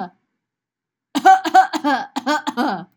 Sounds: Cough